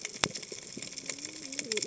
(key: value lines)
label: biophony, cascading saw
recorder: HydroMoth